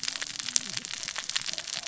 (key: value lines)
label: biophony, cascading saw
recorder: SoundTrap 600 or HydroMoth